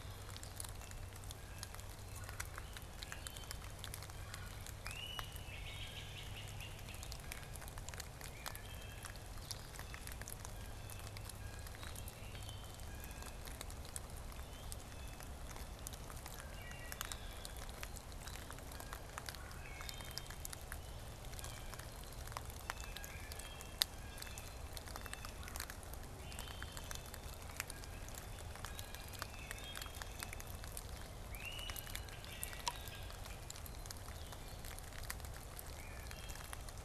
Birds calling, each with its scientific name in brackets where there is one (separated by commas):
Wood Thrush (Hylocichla mustelina), Blue-headed Vireo (Vireo solitarius), Blue Jay (Cyanocitta cristata), Great Crested Flycatcher (Myiarchus crinitus)